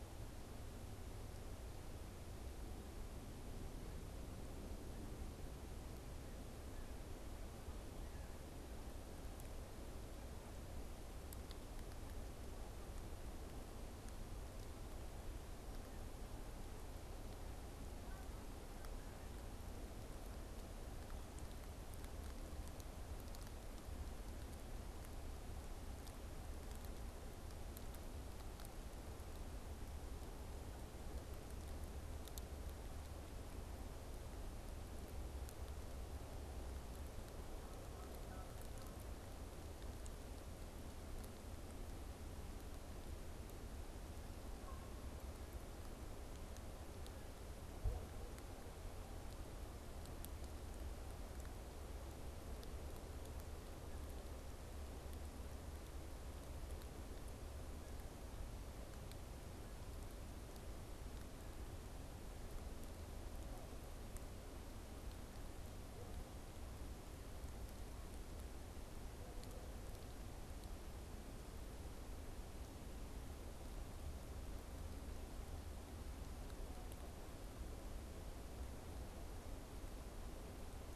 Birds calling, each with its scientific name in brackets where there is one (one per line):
Canada Goose (Branta canadensis)